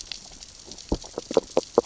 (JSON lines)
{"label": "biophony, grazing", "recorder": "SoundTrap 600 or HydroMoth"}